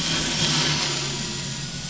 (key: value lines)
label: anthrophony, boat engine
recorder: SoundTrap 500